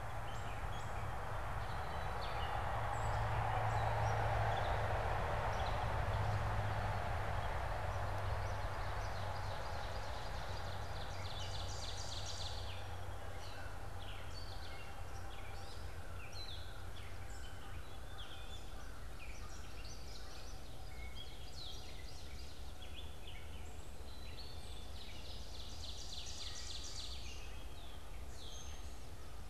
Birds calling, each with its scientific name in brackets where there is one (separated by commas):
Common Yellowthroat (Geothlypis trichas), Gray Catbird (Dumetella carolinensis), Ovenbird (Seiurus aurocapilla), American Crow (Corvus brachyrhynchos)